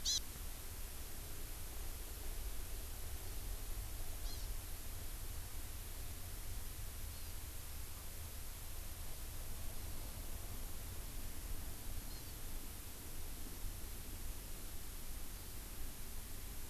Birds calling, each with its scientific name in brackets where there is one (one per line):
Hawaii Amakihi (Chlorodrepanis virens)